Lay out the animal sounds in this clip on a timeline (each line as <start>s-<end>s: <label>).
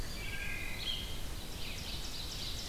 0.0s-1.1s: Eastern Wood-Pewee (Contopus virens)
0.0s-1.2s: Red-eyed Vireo (Vireo olivaceus)
0.1s-1.1s: Wood Thrush (Hylocichla mustelina)
1.3s-2.7s: Ovenbird (Seiurus aurocapilla)